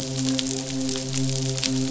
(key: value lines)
label: biophony, midshipman
recorder: SoundTrap 500